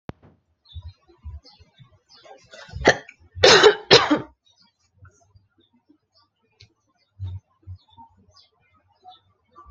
{"expert_labels": [{"quality": "ok", "cough_type": "dry", "dyspnea": false, "wheezing": false, "stridor": false, "choking": false, "congestion": false, "nothing": true, "diagnosis": "healthy cough", "severity": "pseudocough/healthy cough"}], "age": 22, "gender": "female", "respiratory_condition": false, "fever_muscle_pain": false, "status": "healthy"}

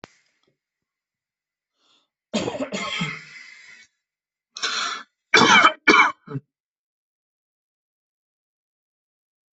{"expert_labels": [{"quality": "ok", "cough_type": "unknown", "dyspnea": false, "wheezing": false, "stridor": false, "choking": false, "congestion": false, "nothing": true, "diagnosis": "upper respiratory tract infection", "severity": "mild"}], "age": 28, "gender": "male", "respiratory_condition": false, "fever_muscle_pain": false, "status": "healthy"}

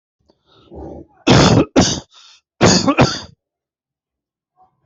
{"expert_labels": [{"quality": "ok", "cough_type": "wet", "dyspnea": false, "wheezing": false, "stridor": false, "choking": false, "congestion": false, "nothing": true, "diagnosis": "lower respiratory tract infection", "severity": "mild"}], "age": 38, "gender": "male", "respiratory_condition": true, "fever_muscle_pain": false, "status": "symptomatic"}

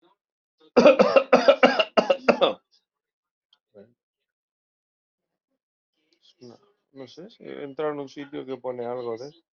{"expert_labels": [{"quality": "ok", "cough_type": "unknown", "dyspnea": false, "wheezing": false, "stridor": false, "choking": false, "congestion": false, "nothing": true, "diagnosis": "lower respiratory tract infection", "severity": "mild"}]}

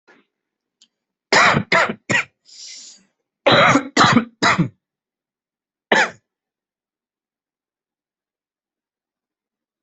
{"expert_labels": [{"quality": "good", "cough_type": "wet", "dyspnea": false, "wheezing": false, "stridor": false, "choking": false, "congestion": false, "nothing": true, "diagnosis": "upper respiratory tract infection", "severity": "mild"}], "age": 25, "gender": "male", "respiratory_condition": false, "fever_muscle_pain": true, "status": "symptomatic"}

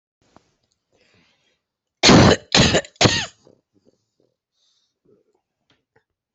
{"expert_labels": [{"quality": "good", "cough_type": "unknown", "dyspnea": false, "wheezing": false, "stridor": false, "choking": false, "congestion": false, "nothing": true, "diagnosis": "lower respiratory tract infection", "severity": "mild"}], "age": 61, "gender": "female", "respiratory_condition": false, "fever_muscle_pain": false, "status": "healthy"}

